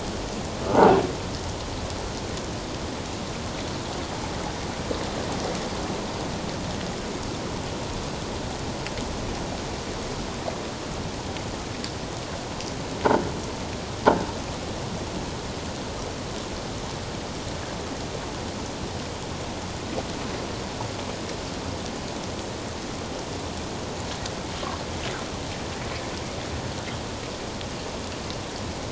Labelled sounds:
0.7	1.0	croaking sound likely from a nearby submerged object, 0.78 to 1.5 kHz

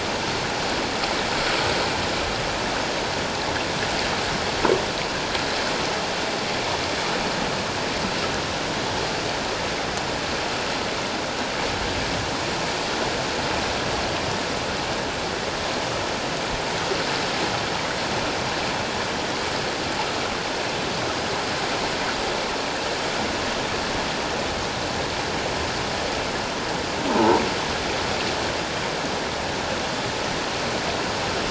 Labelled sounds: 27.1	27.4	croaking sound likely from a nearby submerged object, 0.78 to 1.0 kHz

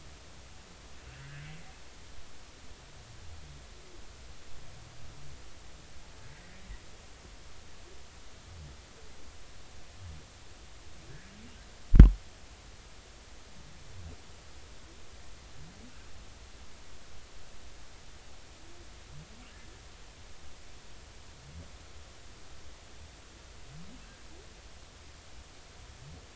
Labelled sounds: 1.2	1.5	humpback whale, 1.5 to 1.8 kHz

